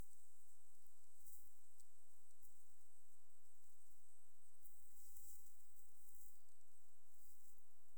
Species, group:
Gryllus assimilis
Orthoptera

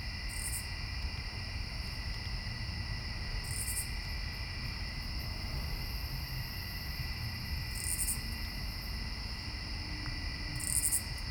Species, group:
Amblycorypha oblongifolia
Orthoptera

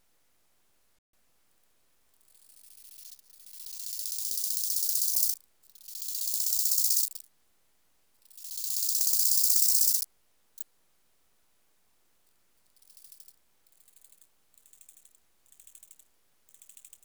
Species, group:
Chorthippus biguttulus
Orthoptera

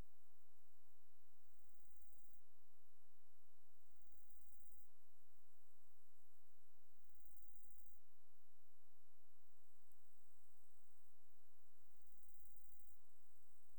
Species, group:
Sorapagus catalaunicus
Orthoptera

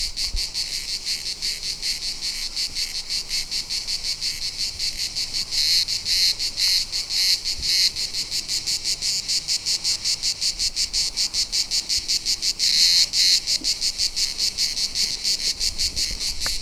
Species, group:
Cicada orni
Cicadidae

